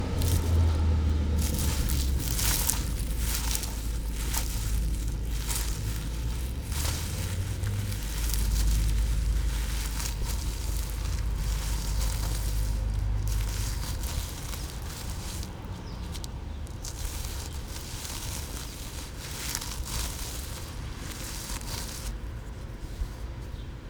What's someone walking through?
leaves